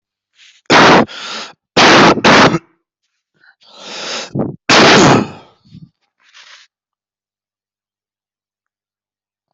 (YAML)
expert_labels:
- quality: poor
  cough_type: unknown
  dyspnea: false
  wheezing: false
  stridor: false
  choking: false
  congestion: false
  nothing: false
  severity: unknown
age: 22
gender: male
respiratory_condition: true
fever_muscle_pain: true
status: COVID-19